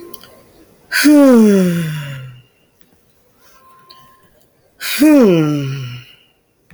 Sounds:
Sigh